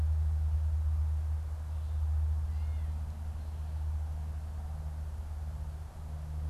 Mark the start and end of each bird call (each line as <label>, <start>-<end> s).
Gray Catbird (Dumetella carolinensis), 2.3-3.1 s